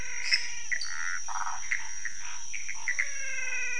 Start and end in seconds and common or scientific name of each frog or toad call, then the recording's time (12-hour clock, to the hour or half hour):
0.0	0.5	lesser tree frog
0.0	3.7	Pithecopus azureus
0.2	3.7	Scinax fuscovarius
0.7	1.1	dwarf tree frog
1.2	1.7	waxy monkey tree frog
2.8	3.7	menwig frog
~2am